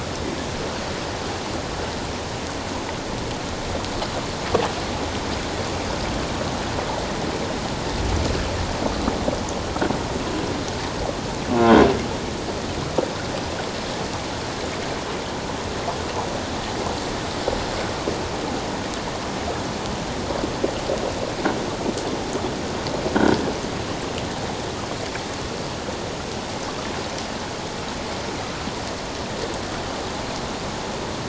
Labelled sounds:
11.6	11.8	croaking sound likely from a nearby submerged object, 1.3 to 1.5 kHz

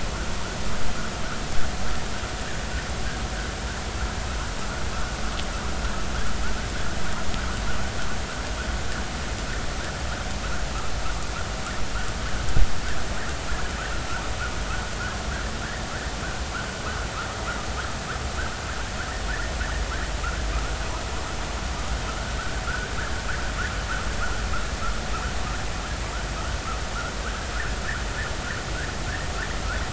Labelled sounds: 22.7	22.9	vessel noise, 1.2 to 1.6 kHz

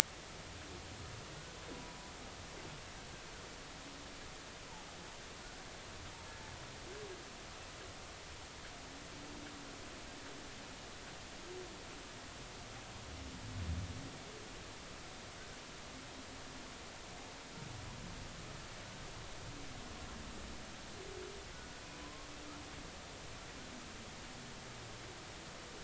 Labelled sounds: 22.0	22.3	humpback whale, 0.99 to 1.1 kHz

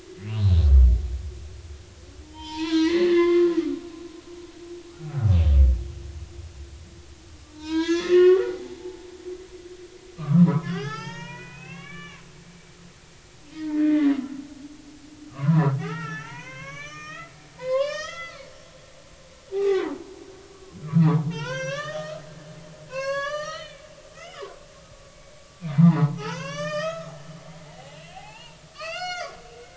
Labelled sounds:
2.2	3.5	humpback whale, 0.83 to 5.2 kHz
7.5	9.1	humpback whale, 0.80 to 5.2 kHz
10.2	12.4	humpback whale, 0.80 to 6.7 kHz
13.5	14.1	humpback whale, 1.5 to 2.2 kHz
15.3	17.3	humpback whale, 0.80 to 6.3 kHz
17.6	18.5	humpback whale, 0.90 to 7.2 kHz
19.5	20.0	humpback whale, 0.80 to 2.4 kHz
20.8	22.2	humpback whale, 0.80 to 6.5 kHz
22.9	24.6	humpback whale, 0.93 to 7.3 kHz
25.7	27.1	humpback whale, 0.80 to 8.0 kHz
27.4	29.3	humpback whale, 0.80 to 7.3 kHz

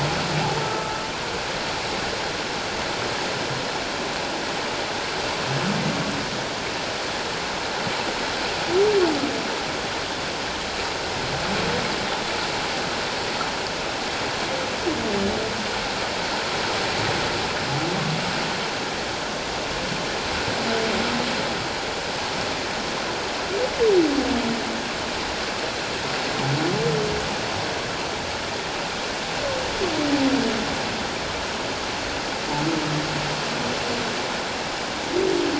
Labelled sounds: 0.6	1.0	humpback whale, 1.2 to 1.4 kHz

